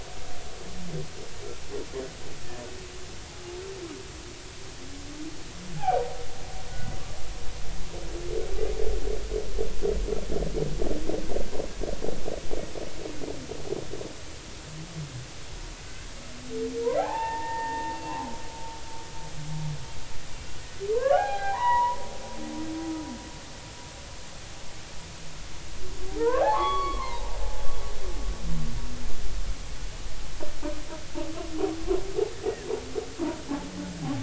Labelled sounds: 5.8	6.0	humpback whale, 0.80 to 0.90 kHz
15.9	18.0	humpback whale, 0.80 to 3.6 kHz
20.9	22.0	humpback whale, 0.80 to 3.9 kHz
26.2	27.3	humpback whale, 0.80 to 4.6 kHz

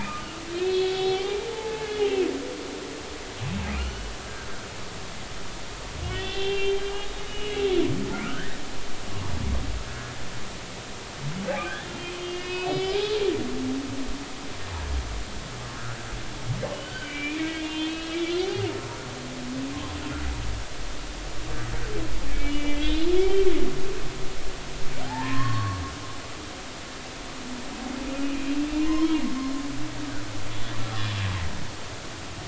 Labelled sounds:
0.2	2.3	humpback whale, 0.80 to 3.9 kHz
3.7	4.1	humpback whale, 1.2 to 4.5 kHz
6.0	7.6	humpback whale, 1.8 to 3.6 kHz
8.1	8.6	humpback whale, 1.2 to 2.0 kHz
12.0	13.1	humpback whale, 0.80 to 5.2 kHz
16.7	18.2	humpback whale, 1.4 to 3.9 kHz
18.4	18.7	humpback whale, 0.80 to 0.86 kHz
22.3	23.4	humpback whale, 2.0 to 4.2 kHz
25.0	25.8	humpback whale, 0.80 to 6.6 kHz
28.2	29.1	humpback whale, 0.93 to 2.9 kHz

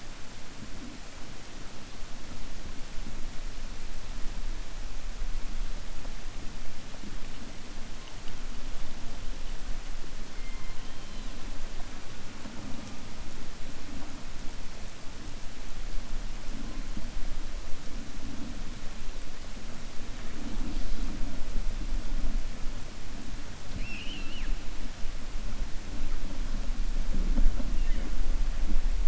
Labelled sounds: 23.7	24.5	killer whale, 1.7 to 5.4 kHz

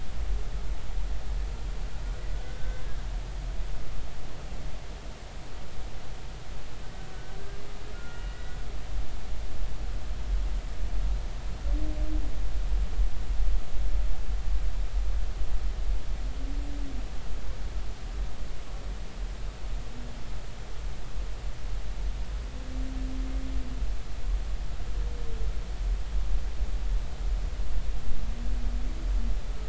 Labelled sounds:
2.4	2.9	humpback whale, 1.4 to 1.6 kHz
7.9	8.6	humpback whale, 1.3 to 2.0 kHz

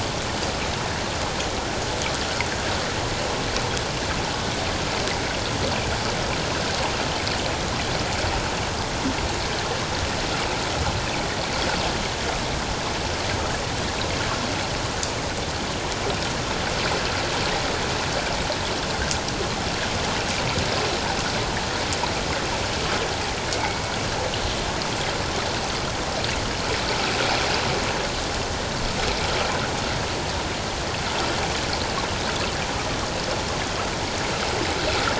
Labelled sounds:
23.5	23.9	killer whale, 2.0 to 2.4 kHz

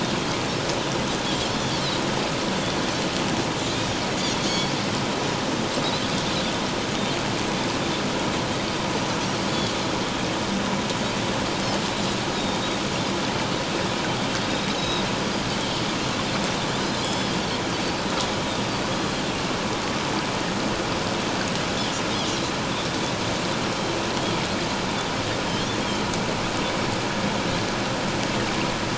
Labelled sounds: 4.4	4.7	Pacific white-sided dolphin, 4.1 to 4.5 kHz
9.5	9.8	Pacific white-sided dolphin, 3.2 to 3.5 kHz
14.4	15.1	Pacific white-sided dolphin, 3.6 to 5.2 kHz
16.8	17.3	Pacific white-sided dolphin, 3.2 to 5.3 kHz

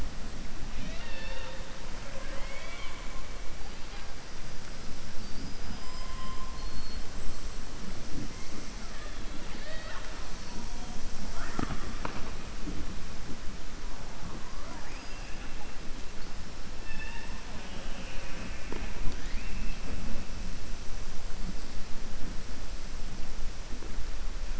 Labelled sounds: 2.0	3.1	killer whale, southern resident, 0.53 to 4.6 kHz
5.1	6.4	killer whale, southern resident, 4.6 to 5.6 kHz
9.3	10.1	killer whale, southern resident, 0.60 to 4.6 kHz
16.8	17.3	killer whale, southern resident, 0.88 to 3.7 kHz

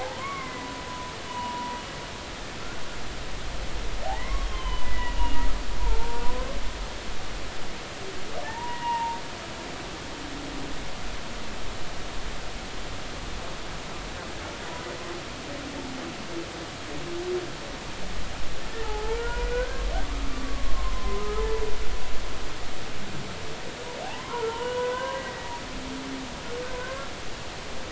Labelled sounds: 0.0	1.8	humpback whale, 0.80 to 3.0 kHz
2.6	2.8	humpback whale, 1.3 to 1.7 kHz
4.0	5.4	humpback whale, 0.80 to 3.3 kHz
5.8	6.2	humpback whale, 0.83 to 1.0 kHz
8.4	9.2	humpback whale, 0.83 to 2.9 kHz
18.8	21.4	humpback whale, 0.80 to 1.7 kHz
24.0	25.5	humpback whale, 0.80 to 3.1 kHz
26.7	27.1	humpback whale, 0.96 to 1.7 kHz

